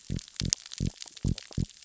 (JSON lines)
{"label": "biophony", "recorder": "SoundTrap 600 or HydroMoth"}